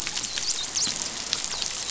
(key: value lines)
label: biophony, dolphin
recorder: SoundTrap 500